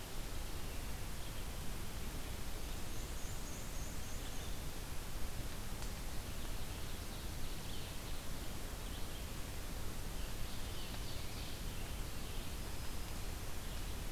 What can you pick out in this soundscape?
American Robin, Red-eyed Vireo, Black-and-white Warbler, Ovenbird